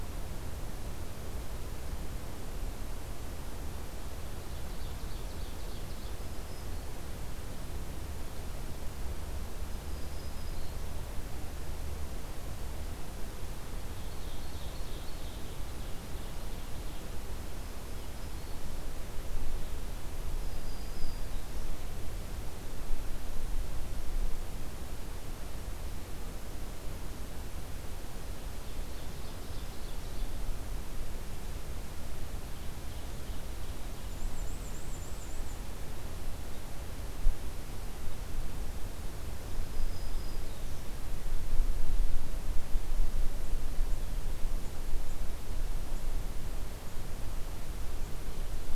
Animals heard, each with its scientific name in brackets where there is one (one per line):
Black-and-white Warbler (Mniotilta varia)
Ovenbird (Seiurus aurocapilla)
Black-throated Green Warbler (Setophaga virens)